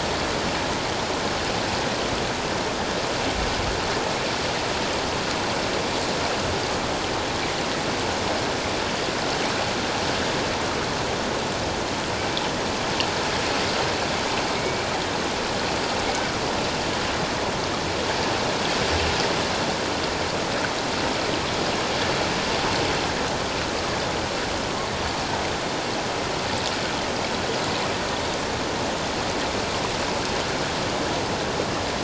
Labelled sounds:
14.6	14.9	killer whale, 2.1 to 2.4 kHz

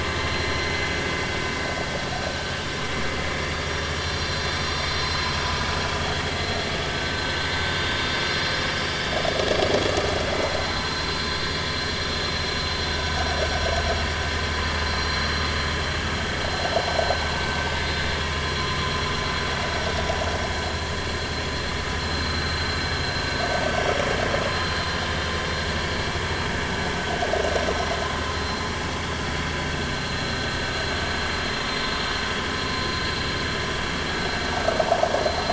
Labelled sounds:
6.9	7.2	vessel noise, 1.5 to 1.6 kHz
12.9	13.2	vessel noise, 1.4 to 1.6 kHz
21.5	21.7	vessel noise, 4.1 to 4.2 kHz
28.4	28.6	vessel noise, 4.1 to 4.2 kHz
29.9	30.4	vessel noise, 4.0 to 4.2 kHz

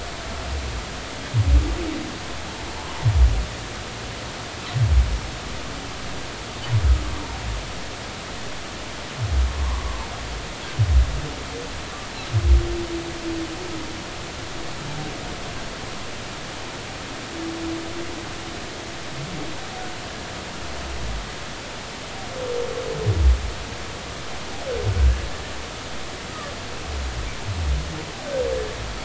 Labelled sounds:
9.5	9.8	humpback whale, 0.93 to 1.2 kHz

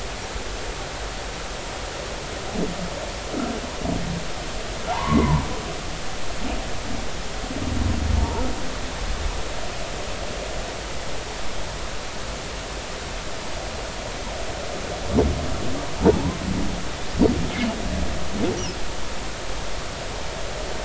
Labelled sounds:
4.9	5.4	humpback whale, 0.80 to 2.2 kHz
8.1	8.4	humpback whale, 0.86 to 0.99 kHz
16.1	16.4	humpback whale, 0.80 to 1.1 kHz

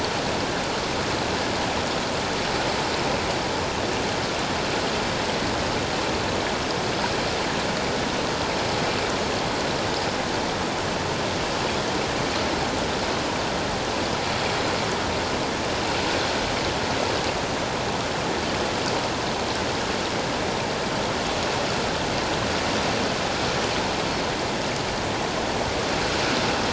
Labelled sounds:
24.1	24.4	Pacific white-sided dolphin, 4.1 to 4.5 kHz

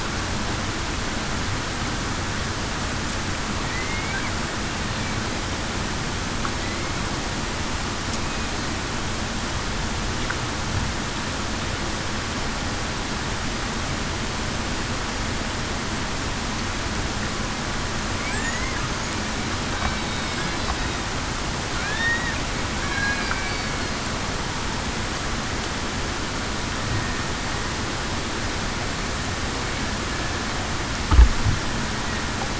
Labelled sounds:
3.7	4.1	killer whale, Bigg's (transient), 1.9 to 2.3 kHz
18.3	18.7	killer whale, Bigg's (transient), 1.5 to 2.2 kHz
21.8	22.3	killer whale, Bigg's (transient), 1.6 to 1.9 kHz
22.9	23.3	killer whale, Bigg's (transient), 1.6 to 1.7 kHz

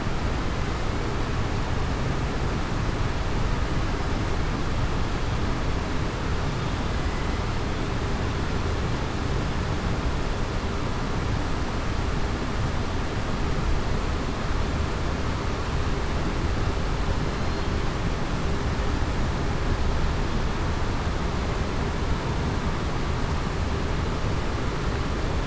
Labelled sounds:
17.3	17.7	killer whale, southern resident, 4.1 to 4.3 kHz

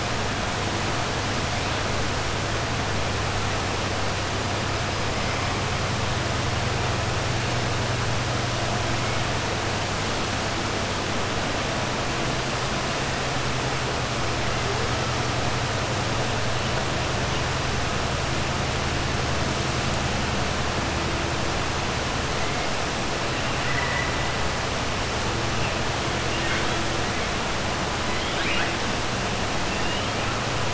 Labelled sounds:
23.6	24.1	killer whale, 0.95 to 2.8 kHz
26.3	26.8	killer whale, 1.4 to 4.0 kHz
28.1	28.7	killer whale, 1.4 to 4.1 kHz

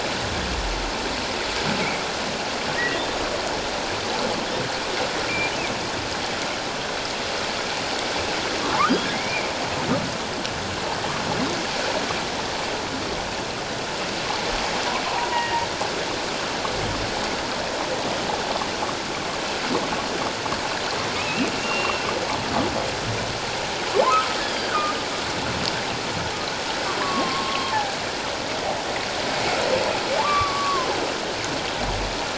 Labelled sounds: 2.8	3.0	humpback whale, 1.8 to 2.0 kHz
9.0	9.5	humpback whale, 1.6 to 2.5 kHz
15.0	15.7	humpback whale, 0.81 to 3.0 kHz
21.1	22.1	humpback whale, 2.4 to 2.8 kHz
24.1	24.9	humpback whale, 1.2 to 3.4 kHz
27.0	27.7	humpback whale, 0.97 to 1.2 kHz
30.2	30.9	humpback whale, 0.81 to 1.3 kHz

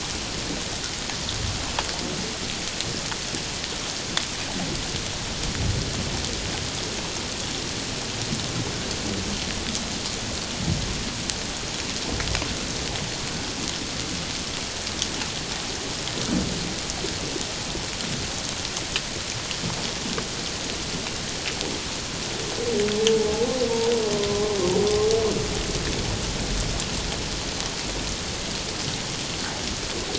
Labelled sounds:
24.3	24.5	humpback whale, 0.97 to 1.1 kHz

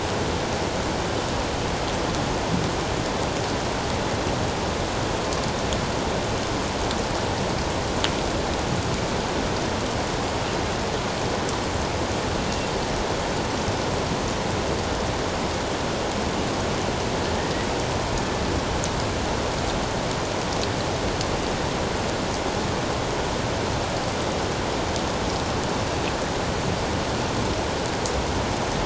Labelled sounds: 17.3	17.7	killer whale, northern resident, 1.8 to 2.0 kHz

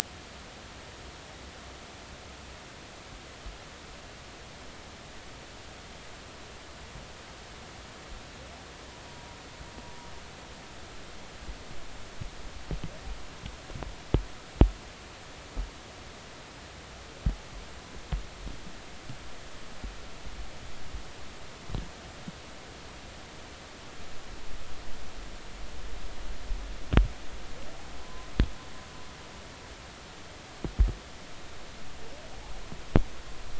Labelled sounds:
28.0	28.3	humpback whale, 0.96 to 1.1 kHz

